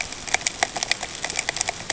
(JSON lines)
{"label": "ambient", "recorder": "HydroMoth"}